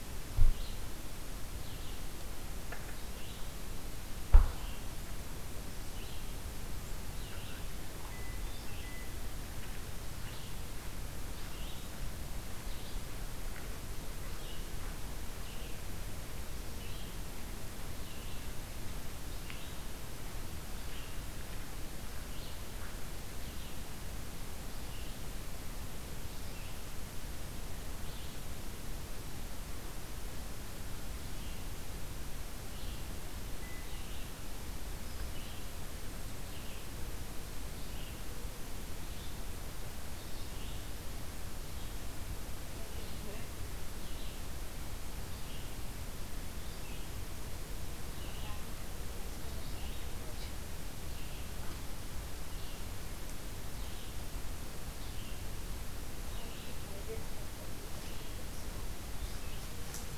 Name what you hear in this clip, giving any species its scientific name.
Vireo olivaceus